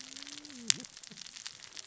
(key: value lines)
label: biophony, cascading saw
recorder: SoundTrap 600 or HydroMoth